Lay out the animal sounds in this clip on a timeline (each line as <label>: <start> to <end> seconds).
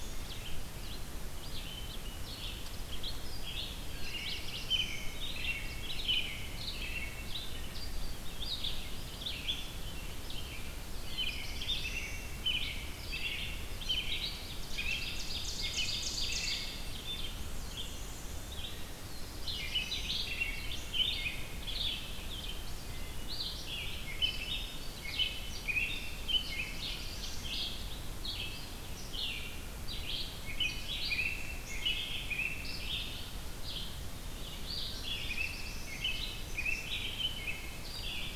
Red-eyed Vireo (Vireo olivaceus): 0.0 to 38.4 seconds
Black-throated Blue Warbler (Setophaga caerulescens): 3.4 to 5.3 seconds
American Robin (Turdus migratorius): 3.7 to 7.8 seconds
Black-throated Blue Warbler (Setophaga caerulescens): 10.7 to 12.6 seconds
American Robin (Turdus migratorius): 10.9 to 17.5 seconds
Ovenbird (Seiurus aurocapilla): 14.2 to 17.1 seconds
Black-and-white Warbler (Mniotilta varia): 17.2 to 18.6 seconds
Black-throated Blue Warbler (Setophaga caerulescens): 18.6 to 20.7 seconds
American Robin (Turdus migratorius): 19.3 to 22.3 seconds
Wood Thrush (Hylocichla mustelina): 22.7 to 23.4 seconds
American Robin (Turdus migratorius): 23.5 to 27.0 seconds
Black-throated Green Warbler (Setophaga virens): 24.1 to 25.3 seconds
Black-throated Blue Warbler (Setophaga caerulescens): 26.1 to 27.6 seconds
American Robin (Turdus migratorius): 29.8 to 33.7 seconds
Black-throated Blue Warbler (Setophaga caerulescens): 34.6 to 36.2 seconds
American Robin (Turdus migratorius): 34.9 to 37.8 seconds